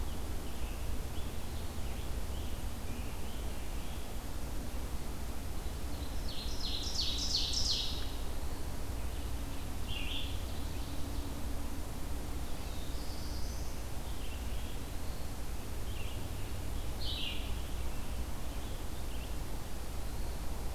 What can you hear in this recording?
Scarlet Tanager, Ovenbird, Red-eyed Vireo, Black-throated Blue Warbler, Eastern Wood-Pewee